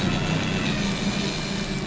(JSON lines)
{"label": "anthrophony, boat engine", "recorder": "SoundTrap 500"}